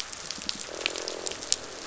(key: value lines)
label: biophony
recorder: SoundTrap 500

label: biophony, croak
recorder: SoundTrap 500